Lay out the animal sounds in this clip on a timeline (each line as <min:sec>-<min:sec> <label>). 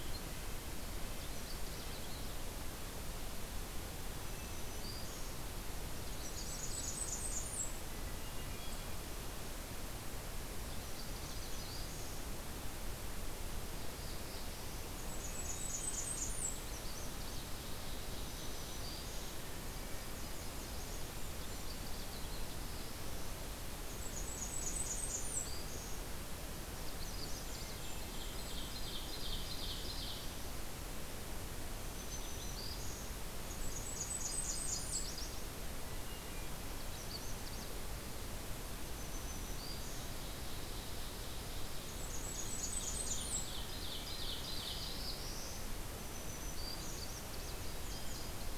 0:00.0-0:01.6 Red-breasted Nuthatch (Sitta canadensis)
0:00.9-0:02.4 Canada Warbler (Cardellina canadensis)
0:03.8-0:05.5 Black-throated Green Warbler (Setophaga virens)
0:06.1-0:08.0 Blackburnian Warbler (Setophaga fusca)
0:07.7-0:09.3 Hermit Thrush (Catharus guttatus)
0:10.6-0:12.0 Nashville Warbler (Leiothlypis ruficapilla)
0:10.8-0:12.5 Black-throated Green Warbler (Setophaga virens)
0:13.5-0:15.1 Black-throated Blue Warbler (Setophaga caerulescens)
0:14.9-0:16.8 Blackburnian Warbler (Setophaga fusca)
0:15.2-0:16.2 Hermit Thrush (Catharus guttatus)
0:16.6-0:18.5 Ovenbird (Seiurus aurocapilla)
0:18.2-0:19.5 Black-throated Green Warbler (Setophaga virens)
0:20.0-0:21.4 Nashville Warbler (Leiothlypis ruficapilla)
0:21.3-0:22.6 Canada Warbler (Cardellina canadensis)
0:22.1-0:23.3 Black-throated Blue Warbler (Setophaga caerulescens)
0:23.8-0:25.7 Blackburnian Warbler (Setophaga fusca)
0:25.0-0:26.0 Black-throated Green Warbler (Setophaga virens)
0:26.7-0:27.8 Magnolia Warbler (Setophaga magnolia)
0:27.1-0:29.0 Golden-crowned Kinglet (Regulus satrapa)
0:28.0-0:30.5 Ovenbird (Seiurus aurocapilla)
0:31.7-0:33.2 Black-throated Green Warbler (Setophaga virens)
0:33.4-0:35.4 Blackburnian Warbler (Setophaga fusca)
0:33.7-0:35.4 Nashville Warbler (Leiothlypis ruficapilla)
0:35.7-0:36.9 Hermit Thrush (Catharus guttatus)
0:36.6-0:37.8 Magnolia Warbler (Setophaga magnolia)
0:38.7-0:40.2 Black-throated Green Warbler (Setophaga virens)
0:39.9-0:41.7 Ovenbird (Seiurus aurocapilla)
0:41.7-0:43.6 Blackburnian Warbler (Setophaga fusca)
0:42.3-0:45.2 Ovenbird (Seiurus aurocapilla)
0:44.2-0:45.7 Black-throated Blue Warbler (Setophaga caerulescens)
0:45.9-0:47.2 Black-throated Green Warbler (Setophaga virens)
0:46.9-0:48.6 Nashville Warbler (Leiothlypis ruficapilla)
0:47.2-0:48.4 Hermit Thrush (Catharus guttatus)